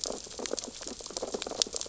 {"label": "biophony, sea urchins (Echinidae)", "recorder": "SoundTrap 600 or HydroMoth"}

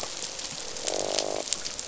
{"label": "biophony, croak", "recorder": "SoundTrap 500"}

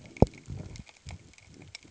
{"label": "ambient", "recorder": "HydroMoth"}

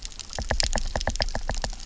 {"label": "biophony, knock", "recorder": "SoundTrap 300"}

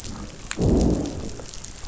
{"label": "biophony, growl", "recorder": "SoundTrap 500"}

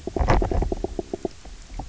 {"label": "biophony, knock croak", "recorder": "SoundTrap 300"}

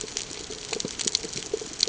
{"label": "ambient", "recorder": "HydroMoth"}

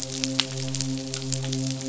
{"label": "biophony, midshipman", "recorder": "SoundTrap 500"}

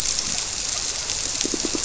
{"label": "biophony, squirrelfish (Holocentrus)", "recorder": "SoundTrap 300"}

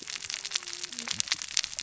{"label": "biophony, cascading saw", "recorder": "SoundTrap 600 or HydroMoth"}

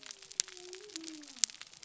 {"label": "biophony", "recorder": "SoundTrap 300"}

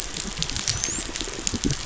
{"label": "biophony, dolphin", "recorder": "SoundTrap 500"}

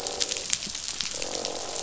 {"label": "biophony, croak", "recorder": "SoundTrap 500"}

